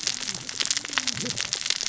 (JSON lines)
{"label": "biophony, cascading saw", "recorder": "SoundTrap 600 or HydroMoth"}